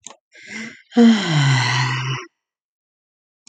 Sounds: Sigh